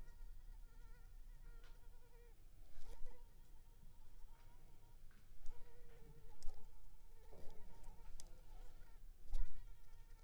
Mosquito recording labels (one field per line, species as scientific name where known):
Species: Culex pipiens complex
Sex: female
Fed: unfed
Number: one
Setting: cup